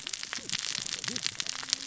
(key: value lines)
label: biophony, cascading saw
recorder: SoundTrap 600 or HydroMoth